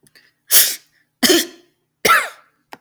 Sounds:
Sneeze